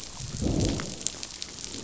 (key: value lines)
label: biophony, growl
recorder: SoundTrap 500